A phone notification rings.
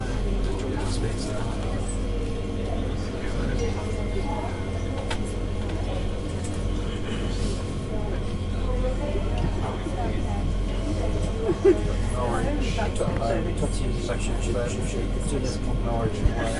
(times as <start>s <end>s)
3.4s 5.3s